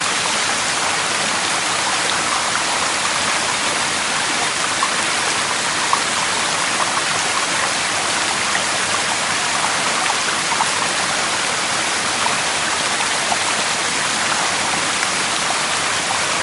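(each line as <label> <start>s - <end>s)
A fast nearby creek flows with a steady, gurgling sound in a forest. 0.0s - 16.4s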